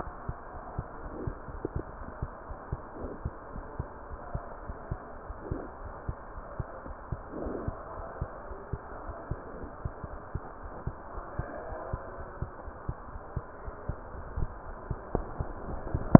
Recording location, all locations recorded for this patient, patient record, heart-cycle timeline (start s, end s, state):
aortic valve (AV)
aortic valve (AV)+pulmonary valve (PV)
#Age: Infant
#Sex: Female
#Height: 65.0 cm
#Weight: 6.4 kg
#Pregnancy status: False
#Murmur: Unknown
#Murmur locations: nan
#Most audible location: nan
#Systolic murmur timing: nan
#Systolic murmur shape: nan
#Systolic murmur grading: nan
#Systolic murmur pitch: nan
#Systolic murmur quality: nan
#Diastolic murmur timing: nan
#Diastolic murmur shape: nan
#Diastolic murmur grading: nan
#Diastolic murmur pitch: nan
#Diastolic murmur quality: nan
#Outcome: Abnormal
#Campaign: 2015 screening campaign
0.00	0.03	unannotated
0.03	0.12	S1
0.12	0.25	systole
0.25	0.36	S2
0.36	0.53	diastole
0.53	0.62	S1
0.62	0.74	systole
0.74	0.86	S2
0.86	1.02	diastole
1.02	1.12	S1
1.12	1.23	systole
1.23	1.36	S2
1.36	1.51	diastole
1.51	1.64	S1
1.64	1.72	systole
1.72	1.86	S2
1.86	1.97	diastole
1.97	2.08	S1
2.08	2.19	systole
2.19	2.32	S2
2.32	2.47	diastole
2.47	2.58	S1
2.58	2.69	systole
2.69	2.82	S2
2.82	3.00	diastole
3.00	3.12	S1
3.12	3.22	systole
3.22	3.36	S2
3.36	3.52	diastole
3.52	3.66	S1
3.66	3.76	systole
3.76	3.90	S2
3.90	4.08	diastole
4.08	4.20	S1
4.20	4.30	systole
4.30	4.42	S2
4.42	4.63	diastole
4.63	4.76	S1
4.76	4.90	systole
4.90	5.02	S2
5.02	5.25	diastole
5.25	5.36	S1
5.36	5.48	systole
5.48	5.62	S2
5.62	5.82	diastole
5.82	5.94	S1
5.94	6.04	systole
6.04	6.16	S2
6.16	6.33	diastole
6.33	6.44	S1
6.44	6.56	systole
6.56	6.66	S2
6.66	6.85	diastole
6.85	6.96	S1
6.96	7.08	systole
7.08	7.22	S2
7.22	7.40	diastole
7.40	7.56	S1
7.56	7.64	systole
7.64	7.78	S2
7.78	7.96	diastole
7.96	8.06	S1
8.06	8.18	systole
8.18	8.30	S2
8.30	8.47	diastole
8.47	8.58	S1
8.58	8.70	systole
8.70	8.80	S2
8.80	9.04	diastole
9.04	9.16	S1
9.16	9.28	systole
9.28	9.40	S2
9.40	9.58	diastole
9.58	9.70	S1
9.70	16.19	unannotated